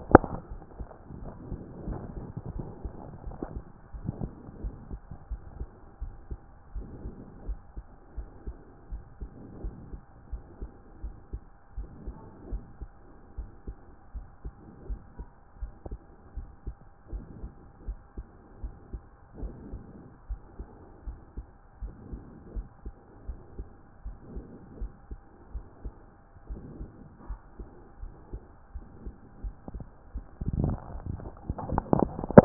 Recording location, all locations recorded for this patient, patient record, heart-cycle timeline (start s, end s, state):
aortic valve (AV)
aortic valve (AV)+pulmonary valve (PV)+tricuspid valve (TV)+mitral valve (MV)
#Age: nan
#Sex: Female
#Height: nan
#Weight: nan
#Pregnancy status: True
#Murmur: Absent
#Murmur locations: nan
#Most audible location: nan
#Systolic murmur timing: nan
#Systolic murmur shape: nan
#Systolic murmur grading: nan
#Systolic murmur pitch: nan
#Systolic murmur quality: nan
#Diastolic murmur timing: nan
#Diastolic murmur shape: nan
#Diastolic murmur grading: nan
#Diastolic murmur pitch: nan
#Diastolic murmur quality: nan
#Outcome: Abnormal
#Campaign: 2014 screening campaign
0.00	0.10	systole
0.10	0.24	S2
0.24	0.50	diastole
0.50	0.62	S1
0.62	0.78	systole
0.78	0.88	S2
0.88	1.18	diastole
1.18	1.34	S1
1.34	1.48	systole
1.48	1.60	S2
1.60	1.86	diastole
1.86	2.02	S1
2.02	2.14	systole
2.14	2.28	S2
2.28	2.54	diastole
2.54	2.70	S1
2.70	2.82	systole
2.82	2.92	S2
2.92	3.24	diastole
3.24	3.38	S1
3.38	3.52	systole
3.52	3.64	S2
3.64	3.94	diastole
3.94	4.06	S1
4.06	4.20	systole
4.20	4.32	S2
4.32	4.62	diastole
4.62	4.76	S1
4.76	4.90	systole
4.90	5.00	S2
5.00	5.28	diastole
5.28	5.42	S1
5.42	5.56	systole
5.56	5.68	S2
5.68	6.02	diastole
6.02	6.16	S1
6.16	6.28	systole
6.28	6.38	S2
6.38	6.74	diastole
6.74	6.88	S1
6.88	7.02	systole
7.02	7.14	S2
7.14	7.46	diastole
7.46	7.60	S1
7.60	7.76	systole
7.76	7.84	S2
7.84	8.16	diastole
8.16	8.30	S1
8.30	8.46	systole
8.46	8.56	S2
8.56	8.90	diastole
8.90	9.04	S1
9.04	9.20	systole
9.20	9.30	S2
9.30	9.62	diastole
9.62	9.74	S1
9.74	9.90	systole
9.90	10.00	S2
10.00	10.30	diastole
10.30	10.42	S1
10.42	10.60	systole
10.60	10.70	S2
10.70	11.02	diastole
11.02	11.16	S1
11.16	11.34	systole
11.34	11.42	S2
11.42	11.76	diastole
11.76	11.90	S1
11.90	12.06	systole
12.06	12.16	S2
12.16	12.48	diastole
12.48	12.62	S1
12.62	12.80	systole
12.80	12.90	S2
12.90	13.34	diastole
13.34	13.50	S1
13.50	13.66	systole
13.66	13.76	S2
13.76	14.14	diastole
14.14	14.28	S1
14.28	14.44	systole
14.44	14.54	S2
14.54	14.88	diastole
14.88	15.00	S1
15.00	15.18	systole
15.18	15.26	S2
15.26	15.60	diastole
15.60	15.72	S1
15.72	15.86	systole
15.86	16.00	S2
16.00	16.36	diastole
16.36	16.50	S1
16.50	16.66	systole
16.66	16.76	S2
16.76	17.12	diastole
17.12	17.26	S1
17.26	17.42	systole
17.42	17.52	S2
17.52	17.86	diastole
17.86	17.98	S1
17.98	18.18	systole
18.18	18.26	S2
18.26	18.62	diastole
18.62	18.74	S1
18.74	18.92	systole
18.92	19.02	S2
19.02	19.40	diastole
19.40	19.54	S1
19.54	19.72	systole
19.72	19.82	S2
19.82	20.26	diastole
20.26	20.40	S1
20.40	20.58	systole
20.58	20.68	S2
20.68	21.06	diastole
21.06	21.18	S1
21.18	21.36	systole
21.36	21.48	S2
21.48	21.82	diastole
21.82	21.94	S1
21.94	22.12	systole
22.12	22.22	S2
22.22	22.52	diastole
22.52	22.66	S1
22.66	22.86	systole
22.86	22.96	S2
22.96	23.28	diastole
23.28	23.42	S1
23.42	23.58	systole
23.58	23.68	S2
23.68	24.06	diastole
24.06	24.18	S1
24.18	24.32	systole
24.32	24.44	S2
24.44	24.78	diastole
24.78	24.92	S1
24.92	25.10	systole
25.10	25.20	S2
25.20	25.54	diastole
25.54	25.66	S1
25.66	25.86	systole
25.86	26.02	S2
26.02	26.46	diastole
26.46	26.62	S1
26.62	26.80	systole
26.80	26.90	S2
26.90	27.26	diastole
27.26	27.40	S1
27.40	27.60	systole
27.60	27.68	S2
27.68	28.02	diastole
28.02	28.12	S1
28.12	28.32	systole
28.32	28.42	S2
28.42	28.74	diastole
28.74	28.86	S1
28.86	29.02	systole
29.02	29.14	S2
29.14	29.44	diastole
29.44	29.56	S1
29.56	29.74	systole
29.74	29.86	S2
29.86	29.99	diastole